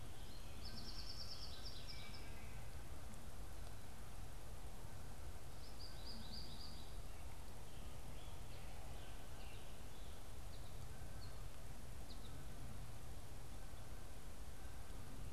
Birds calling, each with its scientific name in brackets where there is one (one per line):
American Goldfinch (Spinus tristis)